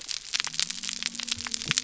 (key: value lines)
label: biophony
recorder: SoundTrap 300